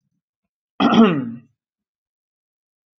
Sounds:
Throat clearing